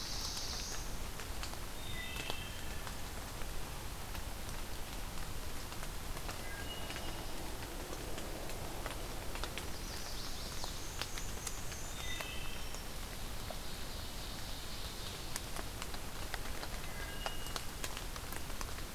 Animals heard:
Black-and-white Warbler (Mniotilta varia)
Ovenbird (Seiurus aurocapilla)
Chestnut-sided Warbler (Setophaga pensylvanica)
Wood Thrush (Hylocichla mustelina)
Black-throated Blue Warbler (Setophaga caerulescens)

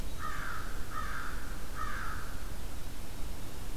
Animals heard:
American Crow (Corvus brachyrhynchos)

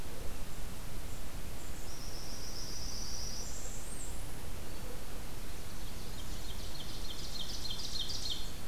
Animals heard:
Blackburnian Warbler (Setophaga fusca)
Ovenbird (Seiurus aurocapilla)

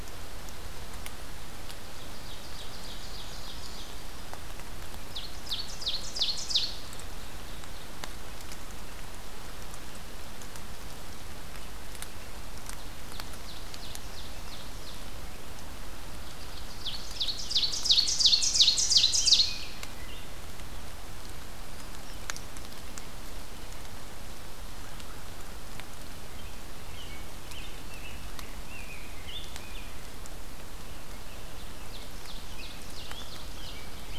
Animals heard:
Brown Creeper (Certhia americana)
Ovenbird (Seiurus aurocapilla)
Rose-breasted Grosbeak (Pheucticus ludovicianus)

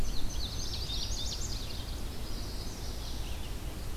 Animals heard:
Red-eyed Vireo (Vireo olivaceus)
Indigo Bunting (Passerina cyanea)
Chestnut-sided Warbler (Setophaga pensylvanica)

